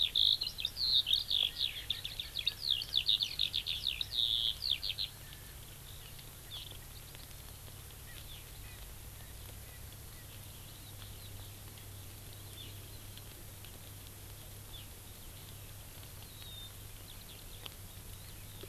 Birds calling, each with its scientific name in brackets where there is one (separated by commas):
Eurasian Skylark (Alauda arvensis), Hawaii Amakihi (Chlorodrepanis virens), Erckel's Francolin (Pternistis erckelii)